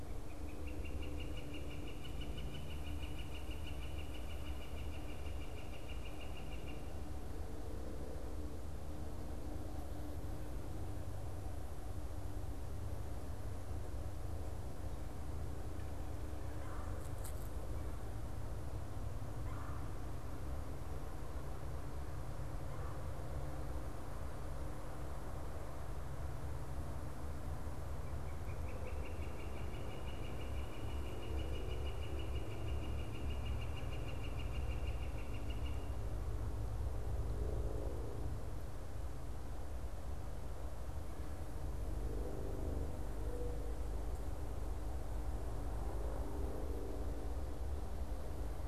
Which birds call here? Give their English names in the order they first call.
Northern Flicker, Red-bellied Woodpecker